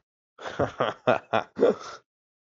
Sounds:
Laughter